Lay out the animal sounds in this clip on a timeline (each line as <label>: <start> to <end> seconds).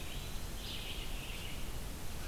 Eastern Wood-Pewee (Contopus virens): 0.0 to 1.0 seconds
Red-eyed Vireo (Vireo olivaceus): 0.0 to 2.3 seconds